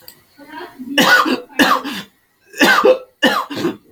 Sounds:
Cough